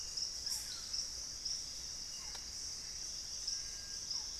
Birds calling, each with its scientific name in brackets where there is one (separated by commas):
Screaming Piha (Lipaugus vociferans), Barred Forest-Falcon (Micrastur ruficollis)